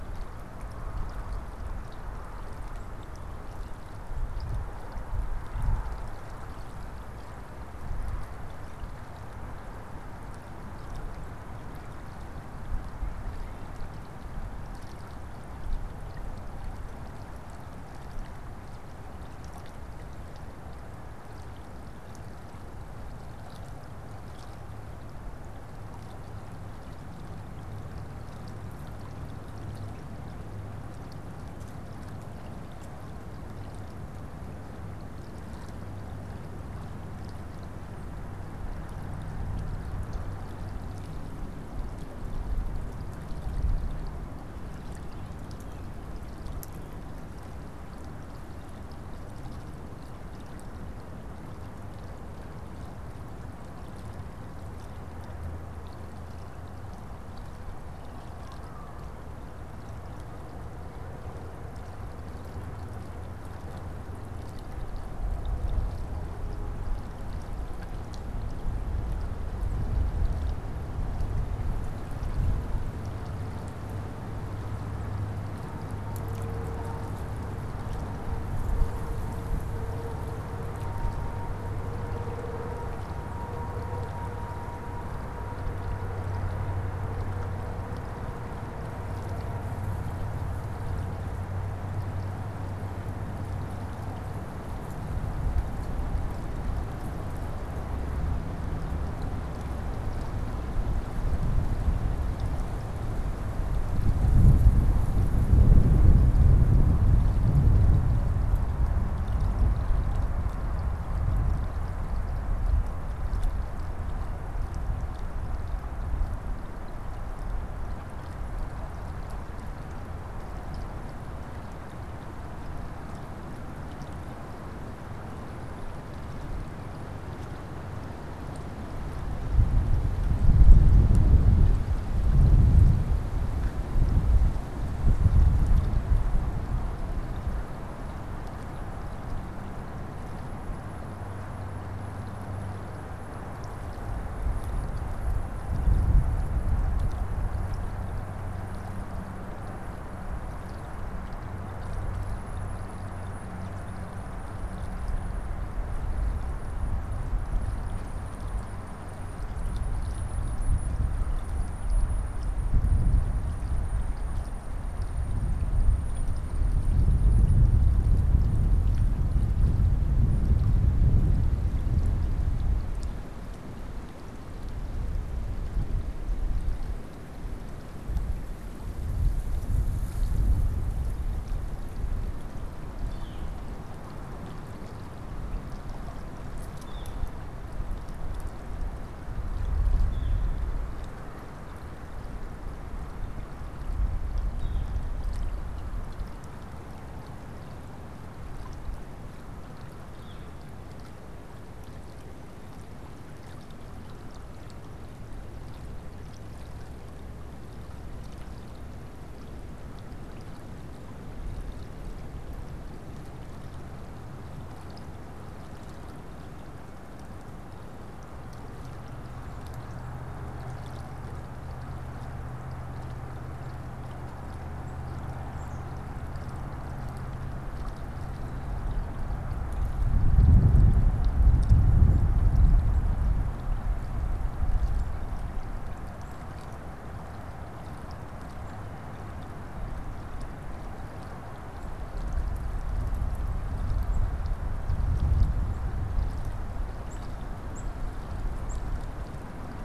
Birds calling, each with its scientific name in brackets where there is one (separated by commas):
Tufted Titmouse (Baeolophus bicolor), unidentified bird, Northern Flicker (Colaptes auratus)